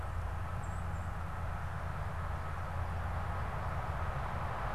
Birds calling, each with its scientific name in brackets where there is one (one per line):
unidentified bird